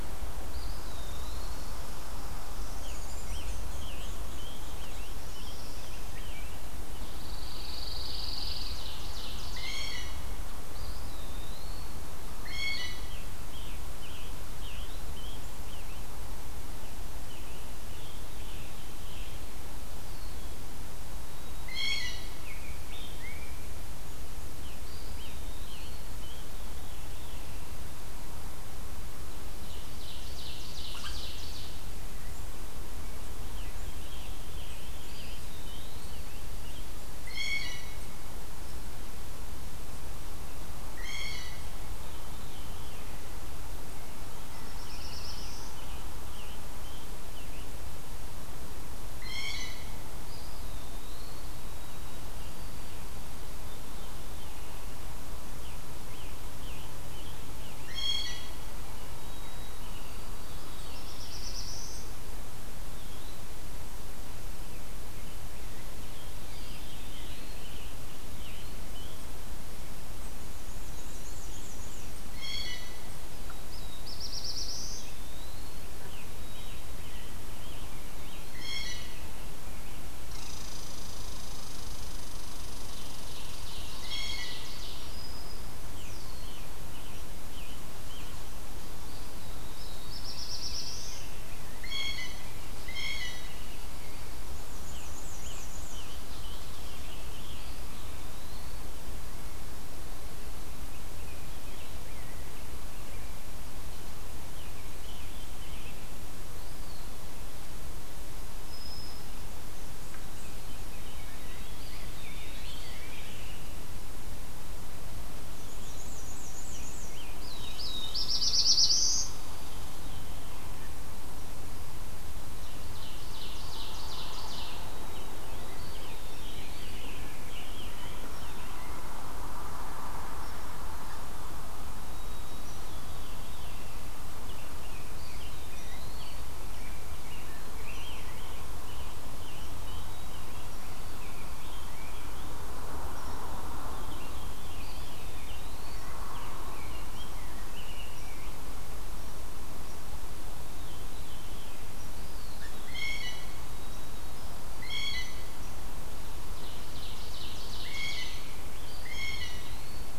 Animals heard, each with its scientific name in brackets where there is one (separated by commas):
Black-throated Blue Warbler (Setophaga caerulescens), Black-and-white Warbler (Mniotilta varia), American Robin (Turdus migratorius), Red Squirrel (Tamiasciurus hudsonicus), Pine Warbler (Setophaga pinus), Ovenbird (Seiurus aurocapilla), Eastern Wood-Pewee (Contopus virens), Scarlet Tanager (Piranga olivacea), White-throated Sparrow (Zonotrichia albicollis), Veery (Catharus fuscescens), Blue Jay (Cyanocitta cristata)